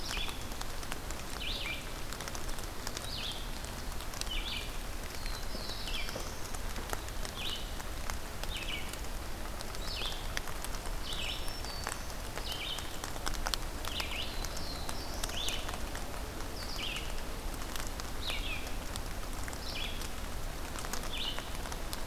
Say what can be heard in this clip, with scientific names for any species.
Vireo olivaceus, Setophaga caerulescens, Setophaga virens